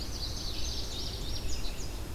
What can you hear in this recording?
Indigo Bunting, Red-eyed Vireo